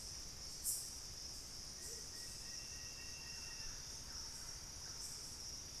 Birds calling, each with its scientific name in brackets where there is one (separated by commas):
Amazonian Motmot (Momotus momota), Thrush-like Wren (Campylorhynchus turdinus), Plain-winged Antshrike (Thamnophilus schistaceus)